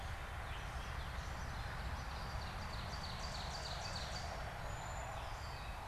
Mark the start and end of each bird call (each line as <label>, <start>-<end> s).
Gray Catbird (Dumetella carolinensis), 0.0-5.9 s
Ovenbird (Seiurus aurocapilla), 1.7-4.6 s
Cedar Waxwing (Bombycilla cedrorum), 4.5-5.9 s